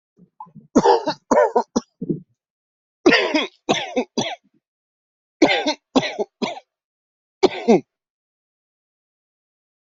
{"expert_labels": [{"quality": "good", "cough_type": "dry", "dyspnea": false, "wheezing": false, "stridor": false, "choking": false, "congestion": false, "nothing": true, "diagnosis": "COVID-19", "severity": "mild"}], "age": 34, "gender": "male", "respiratory_condition": false, "fever_muscle_pain": true, "status": "COVID-19"}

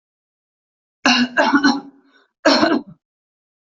{"expert_labels": [{"quality": "ok", "cough_type": "unknown", "dyspnea": false, "wheezing": false, "stridor": false, "choking": false, "congestion": false, "nothing": true, "diagnosis": "healthy cough", "severity": "pseudocough/healthy cough"}, {"quality": "good", "cough_type": "dry", "dyspnea": false, "wheezing": false, "stridor": false, "choking": false, "congestion": false, "nothing": true, "diagnosis": "COVID-19", "severity": "mild"}, {"quality": "good", "cough_type": "wet", "dyspnea": false, "wheezing": false, "stridor": false, "choking": false, "congestion": false, "nothing": true, "diagnosis": "upper respiratory tract infection", "severity": "mild"}, {"quality": "good", "cough_type": "dry", "dyspnea": false, "wheezing": false, "stridor": false, "choking": false, "congestion": false, "nothing": true, "diagnosis": "upper respiratory tract infection", "severity": "mild"}], "age": 50, "gender": "female", "respiratory_condition": false, "fever_muscle_pain": false, "status": "symptomatic"}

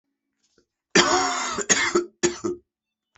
{"expert_labels": [{"quality": "good", "cough_type": "dry", "dyspnea": false, "wheezing": false, "stridor": false, "choking": false, "congestion": true, "nothing": false, "diagnosis": "upper respiratory tract infection", "severity": "mild"}], "age": 35, "gender": "male", "respiratory_condition": false, "fever_muscle_pain": false, "status": "symptomatic"}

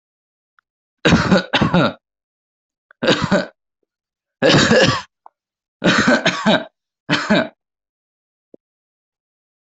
{"expert_labels": [{"quality": "ok", "cough_type": "unknown", "dyspnea": false, "wheezing": false, "stridor": false, "choking": false, "congestion": false, "nothing": true, "diagnosis": "healthy cough", "severity": "pseudocough/healthy cough"}], "age": 24, "gender": "male", "respiratory_condition": false, "fever_muscle_pain": false, "status": "symptomatic"}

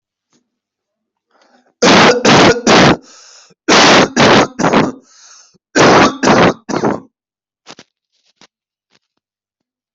{"expert_labels": [{"quality": "poor", "cough_type": "unknown", "dyspnea": false, "wheezing": false, "stridor": false, "choking": false, "congestion": false, "nothing": true, "diagnosis": "COVID-19", "severity": "mild"}], "age": 24, "gender": "male", "respiratory_condition": false, "fever_muscle_pain": false, "status": "healthy"}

